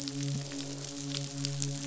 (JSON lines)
{"label": "biophony, midshipman", "recorder": "SoundTrap 500"}
{"label": "biophony, croak", "recorder": "SoundTrap 500"}